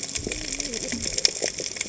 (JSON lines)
{"label": "biophony, cascading saw", "recorder": "HydroMoth"}